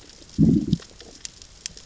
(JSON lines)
{"label": "biophony, growl", "recorder": "SoundTrap 600 or HydroMoth"}